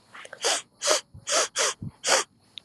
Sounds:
Sniff